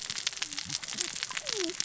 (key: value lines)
label: biophony, cascading saw
recorder: SoundTrap 600 or HydroMoth